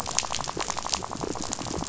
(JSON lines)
{"label": "biophony, rattle", "recorder": "SoundTrap 500"}